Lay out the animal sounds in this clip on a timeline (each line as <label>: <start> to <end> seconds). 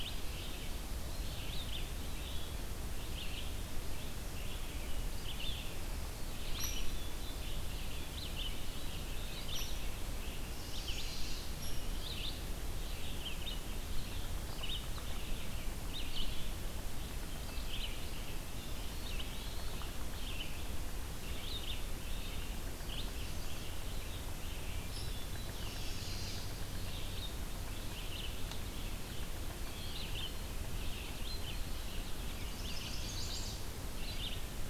Red-eyed Vireo (Vireo olivaceus): 0.0 to 34.6 seconds
Eastern Wood-Pewee (Contopus virens): 1.0 to 2.4 seconds
Hairy Woodpecker (Dryobates villosus): 6.5 to 6.7 seconds
Hairy Woodpecker (Dryobates villosus): 9.5 to 9.8 seconds
Chestnut-sided Warbler (Setophaga pensylvanica): 10.2 to 11.7 seconds
Hairy Woodpecker (Dryobates villosus): 11.6 to 11.8 seconds
Hairy Woodpecker (Dryobates villosus): 24.9 to 25.1 seconds
Chestnut-sided Warbler (Setophaga pensylvanica): 25.5 to 26.5 seconds
Chestnut-sided Warbler (Setophaga pensylvanica): 32.2 to 33.7 seconds